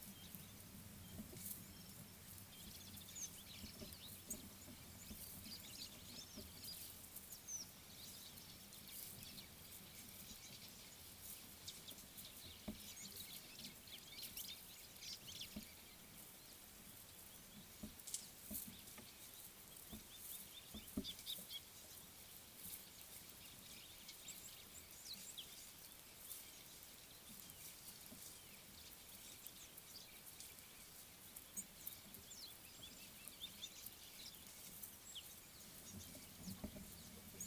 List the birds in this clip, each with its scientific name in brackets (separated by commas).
Mariqua Sunbird (Cinnyris mariquensis), Gabar Goshawk (Micronisus gabar), Red-cheeked Cordonbleu (Uraeginthus bengalus), White-browed Sparrow-Weaver (Plocepasser mahali)